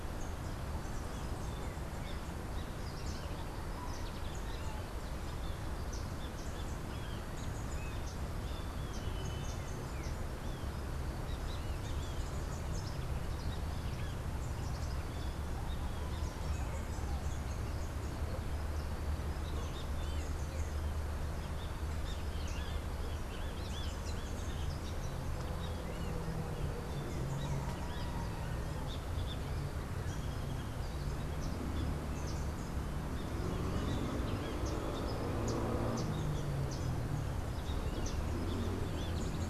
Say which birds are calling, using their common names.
Great Kiskadee, Yellow Warbler